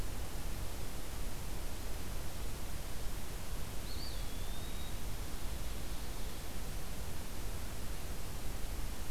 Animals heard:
Eastern Wood-Pewee (Contopus virens)

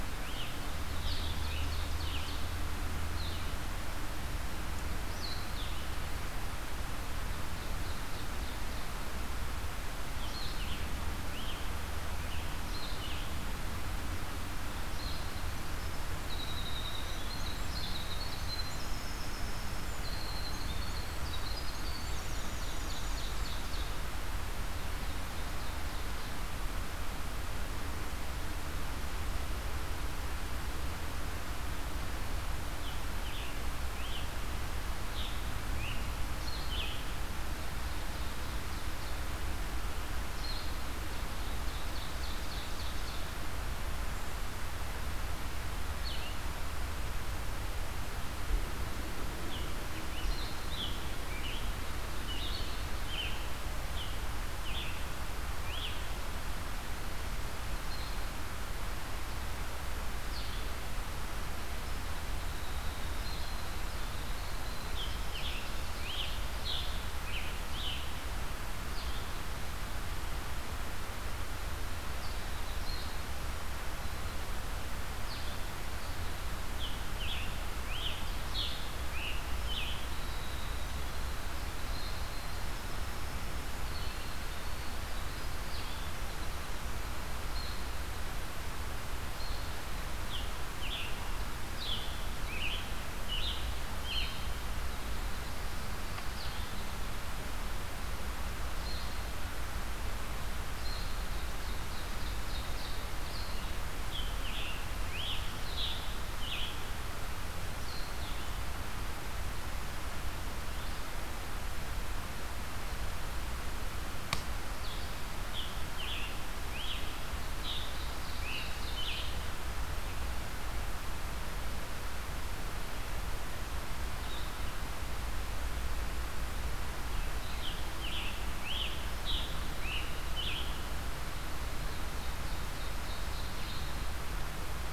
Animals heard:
Ovenbird (Seiurus aurocapilla), Scarlet Tanager (Piranga olivacea), Winter Wren (Troglodytes hiemalis), Blue-headed Vireo (Vireo solitarius)

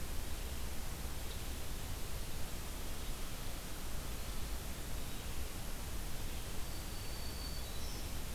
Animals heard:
Red-eyed Vireo (Vireo olivaceus), Black-throated Green Warbler (Setophaga virens)

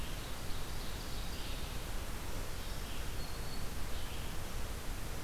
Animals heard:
Red-eyed Vireo (Vireo olivaceus), Black-throated Green Warbler (Setophaga virens), Ovenbird (Seiurus aurocapilla)

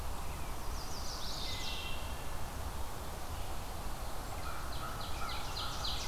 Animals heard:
American Crow (Corvus brachyrhynchos), Wood Thrush (Hylocichla mustelina), Ovenbird (Seiurus aurocapilla), Chestnut-sided Warbler (Setophaga pensylvanica)

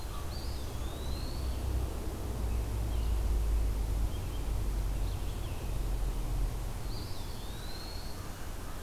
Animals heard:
Eastern Wood-Pewee (Contopus virens)

